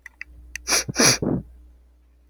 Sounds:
Sniff